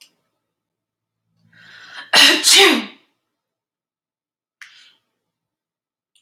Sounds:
Sneeze